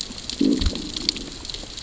{"label": "biophony, growl", "recorder": "SoundTrap 600 or HydroMoth"}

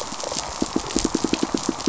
{"label": "biophony, pulse", "recorder": "SoundTrap 500"}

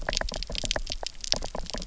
{"label": "biophony, knock croak", "recorder": "SoundTrap 300"}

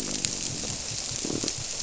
{"label": "biophony, squirrelfish (Holocentrus)", "recorder": "SoundTrap 300"}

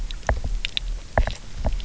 {"label": "biophony, knock", "recorder": "SoundTrap 300"}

